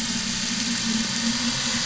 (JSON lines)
{"label": "anthrophony, boat engine", "recorder": "SoundTrap 500"}